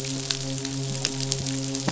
{"label": "biophony, midshipman", "recorder": "SoundTrap 500"}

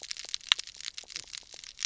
{"label": "biophony, knock croak", "recorder": "SoundTrap 300"}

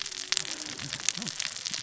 {"label": "biophony, cascading saw", "recorder": "SoundTrap 600 or HydroMoth"}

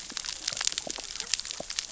{"label": "biophony, cascading saw", "recorder": "SoundTrap 600 or HydroMoth"}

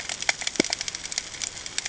{"label": "ambient", "recorder": "HydroMoth"}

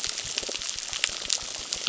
{"label": "biophony, crackle", "recorder": "SoundTrap 600"}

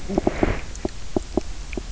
{"label": "biophony, knock", "recorder": "SoundTrap 300"}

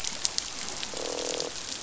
{"label": "biophony, croak", "recorder": "SoundTrap 500"}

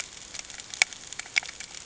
{"label": "ambient", "recorder": "HydroMoth"}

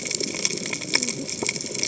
{"label": "biophony, cascading saw", "recorder": "HydroMoth"}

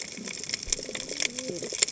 {"label": "biophony, cascading saw", "recorder": "HydroMoth"}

